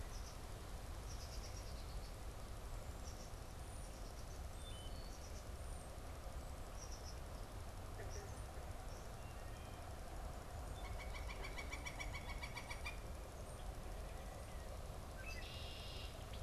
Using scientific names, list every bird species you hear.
unidentified bird, Hylocichla mustelina, Colaptes auratus, Agelaius phoeniceus